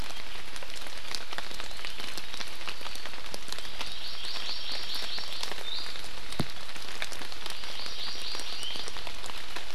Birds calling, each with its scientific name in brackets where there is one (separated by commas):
Iiwi (Drepanis coccinea), Hawaii Amakihi (Chlorodrepanis virens)